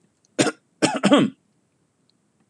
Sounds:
Throat clearing